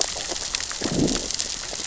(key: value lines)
label: biophony, growl
recorder: SoundTrap 600 or HydroMoth